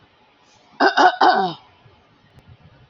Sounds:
Throat clearing